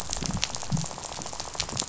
{"label": "biophony, rattle", "recorder": "SoundTrap 500"}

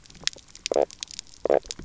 {"label": "biophony, knock croak", "recorder": "SoundTrap 300"}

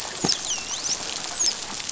{"label": "biophony, dolphin", "recorder": "SoundTrap 500"}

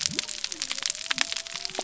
{"label": "biophony", "recorder": "SoundTrap 300"}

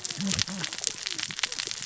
{"label": "biophony, cascading saw", "recorder": "SoundTrap 600 or HydroMoth"}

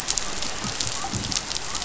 {"label": "biophony", "recorder": "SoundTrap 500"}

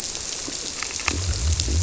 {"label": "biophony", "recorder": "SoundTrap 300"}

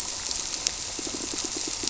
{"label": "biophony, squirrelfish (Holocentrus)", "recorder": "SoundTrap 300"}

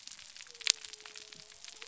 {"label": "biophony", "recorder": "SoundTrap 300"}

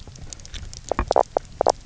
{"label": "biophony, knock croak", "recorder": "SoundTrap 300"}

